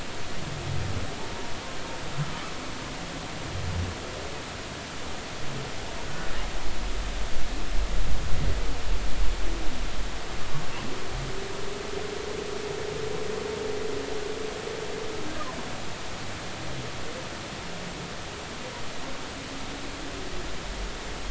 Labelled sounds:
6.0	6.3	humpback whale, 1.4 to 1.5 kHz

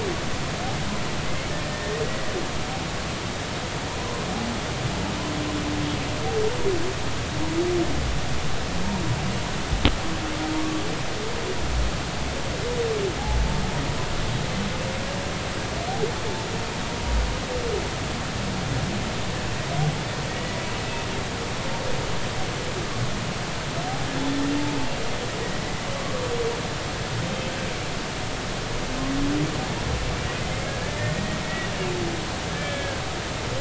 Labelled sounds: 1.6	2.0	humpback whale, 1.7 to 1.9 kHz
10.6	10.8	humpback whale, 1.1 to 1.2 kHz
20.3	20.6	humpback whale, 1.8 to 2.0 kHz
25.6	25.9	humpback whale, 1.9 to 2.0 kHz
31.0	31.4	humpback whale, 1.8 to 2.0 kHz
32.5	33.0	humpback whale, 1.5 to 3.5 kHz

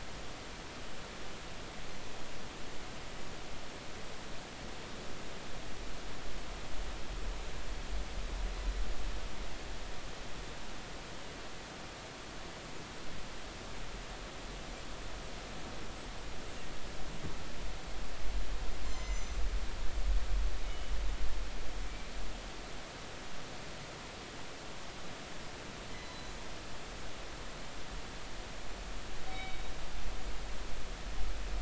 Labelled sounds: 9.6	9.9	killer whale, northern resident, G clan, 7.7 to 8.0 kHz
18.9	19.4	killer whale, northern resident, G clan, 2.0 to 6.4 kHz
20.6	20.9	killer whale, northern resident, G clan, 2.9 to 3.0 kHz
26.0	26.4	killer whale, northern resident, G clan, 3.9 to 4.1 kHz
29.3	29.7	killer whale, northern resident, G clan, 2.1 to 3.8 kHz

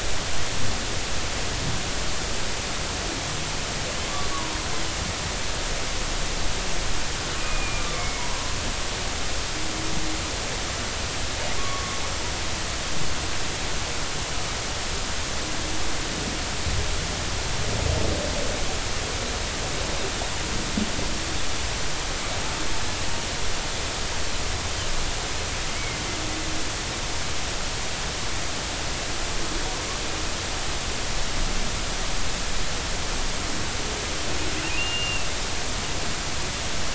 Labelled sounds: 4.3	4.6	humpback whale, 0.93 to 1.2 kHz
7.4	8.2	humpback whale, 1.0 to 2.6 kHz
11.6	12.0	humpback whale, 1.0 to 1.2 kHz
25.7	26.0	humpback whale, 2.0 to 2.3 kHz
34.8	35.3	humpback whale, 2.6 to 2.9 kHz

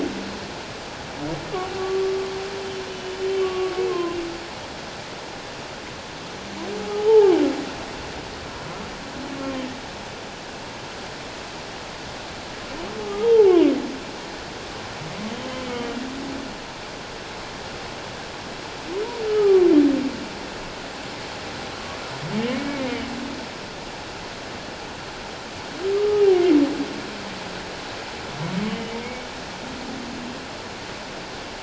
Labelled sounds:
1.8	4.2	humpback whale, 0.97 to 3.2 kHz
7.1	7.3	humpback whale, 0.78 to 0.94 kHz
13.2	13.6	humpback whale, 0.78 to 0.97 kHz
15.6	15.9	humpback whale, 2.1 to 2.3 kHz
19.3	19.7	humpback whale, 1.0 to 1.3 kHz
22.4	23.0	humpback whale, 1.8 to 2.3 kHz
25.9	26.2	humpback whale, 1.2 to 1.3 kHz
28.6	29.3	humpback whale, 2.1 to 3.0 kHz

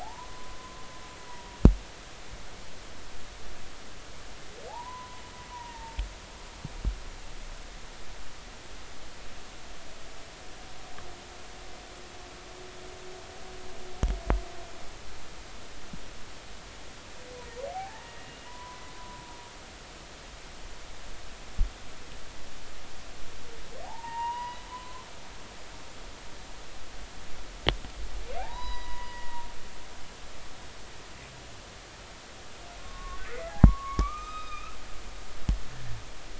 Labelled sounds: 0.0	1.6	humpback whale, 0.80 to 1.2 kHz
4.7	6.0	humpback whale, 0.80 to 1.1 kHz
17.7	19.2	humpback whale, 0.80 to 1.9 kHz
23.8	25.0	humpback whale, 0.80 to 2.9 kHz
28.4	29.5	humpback whale, 0.80 to 5.0 kHz
32.8	35.6	humpback whale, 0.93 to 5.0 kHz

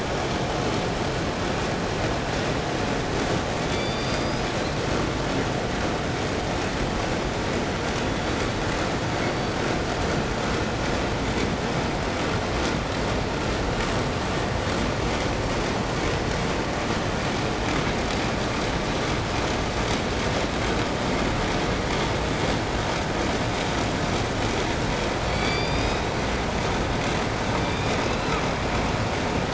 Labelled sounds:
3.6	4.8	killer whale, southern resident, J pod, call S01, 1.9 to 8.0 kHz
7.7	8.6	killer whale, southern resident, call S16, 3.1 to 7.7 kHz
9.0	9.8	killer whale, southern resident, call S16, 3.3 to 7.3 kHz
25.2	26.7	killer whale, southern resident, J pod, call S01, 1.8 to 8.0 kHz
27.3	28.5	killer whale, southern resident, 0.90 to 6.2 kHz

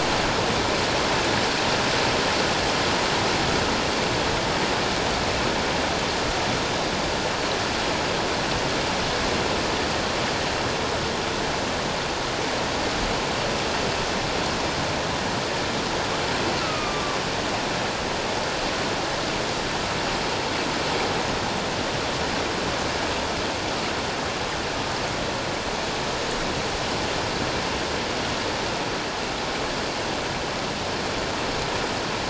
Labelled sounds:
16.6	17.2	killer whale, northern resident, A clan, AA subclan, A01 pod, call N04, 0.97 to 2.7 kHz

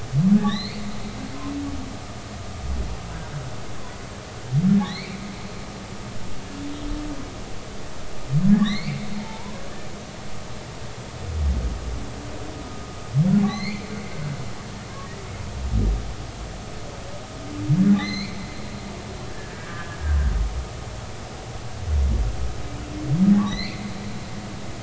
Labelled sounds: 0.4	0.8	humpback whale, 1.6 to 4.5 kHz
4.8	5.2	humpback whale, 1.7 to 4.6 kHz
8.5	9.6	humpback whale, 0.83 to 4.8 kHz
13.5	13.9	humpback whale, 1.9 to 4.7 kHz
17.9	18.4	humpback whale, 1.7 to 6.6 kHz
19.3	20.0	humpback whale, 1.4 to 1.8 kHz
23.5	23.9	humpback whale, 1.9 to 4.8 kHz

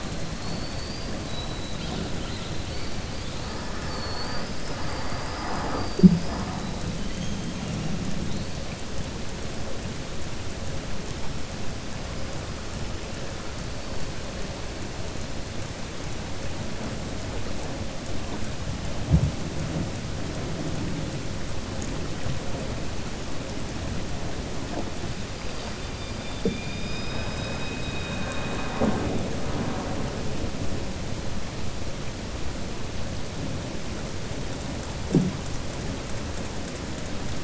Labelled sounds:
0.3	1.1	killer whale, southern resident, 4.3 to 4.8 kHz
3.7	4.8	killer whale, southern resident, 4.4 to 5.4 kHz

